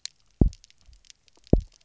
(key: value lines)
label: biophony, double pulse
recorder: SoundTrap 300